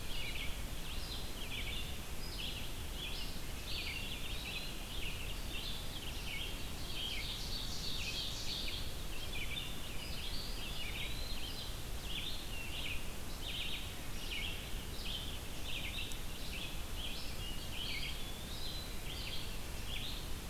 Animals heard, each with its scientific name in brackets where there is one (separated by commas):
Ovenbird (Seiurus aurocapilla), Red-eyed Vireo (Vireo olivaceus), Eastern Wood-Pewee (Contopus virens)